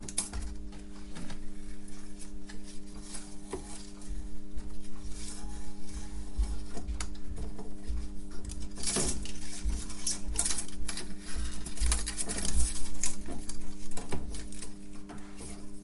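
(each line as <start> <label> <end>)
0.0 A mechanical clicking and slipping. 15.8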